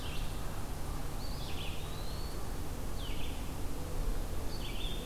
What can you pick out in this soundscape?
Red-eyed Vireo, Eastern Wood-Pewee